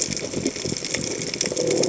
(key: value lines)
label: biophony
recorder: HydroMoth